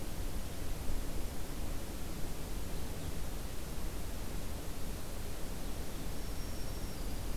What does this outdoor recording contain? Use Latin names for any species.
Setophaga virens